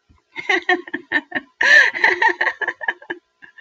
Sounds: Laughter